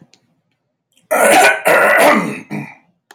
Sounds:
Throat clearing